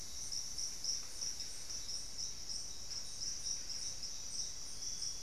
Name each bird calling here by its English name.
Buff-breasted Wren, Cinnamon-rumped Foliage-gleaner